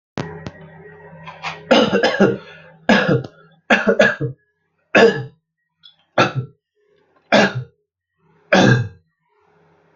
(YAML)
expert_labels:
- quality: ok
  cough_type: dry
  dyspnea: false
  wheezing: false
  stridor: false
  choking: false
  congestion: false
  nothing: true
  diagnosis: upper respiratory tract infection
  severity: mild
age: 29
gender: male
respiratory_condition: false
fever_muscle_pain: false
status: symptomatic